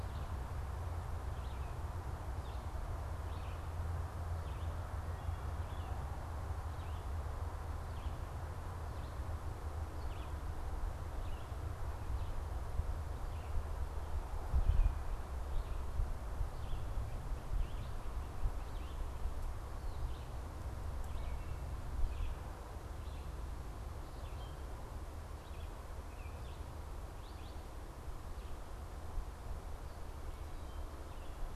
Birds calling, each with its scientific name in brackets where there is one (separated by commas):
Red-eyed Vireo (Vireo olivaceus), Baltimore Oriole (Icterus galbula)